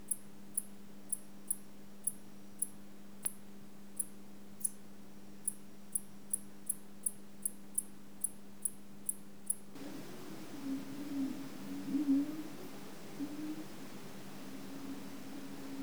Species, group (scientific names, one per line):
Decticus albifrons
Orthoptera